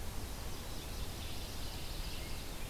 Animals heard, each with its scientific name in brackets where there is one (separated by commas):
Yellow-rumped Warbler (Setophaga coronata), Veery (Catharus fuscescens), Pine Warbler (Setophaga pinus)